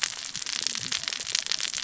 {"label": "biophony, cascading saw", "recorder": "SoundTrap 600 or HydroMoth"}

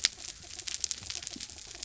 {"label": "anthrophony, mechanical", "recorder": "SoundTrap 300"}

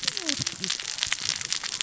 {"label": "biophony, cascading saw", "recorder": "SoundTrap 600 or HydroMoth"}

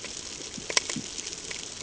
{"label": "ambient", "recorder": "HydroMoth"}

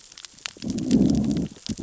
{"label": "biophony, growl", "recorder": "SoundTrap 600 or HydroMoth"}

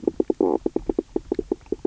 {"label": "biophony, knock croak", "recorder": "SoundTrap 300"}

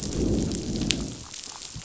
{"label": "biophony, growl", "recorder": "SoundTrap 500"}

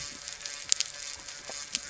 {"label": "anthrophony, boat engine", "recorder": "SoundTrap 300"}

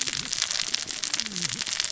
{"label": "biophony, cascading saw", "recorder": "SoundTrap 600 or HydroMoth"}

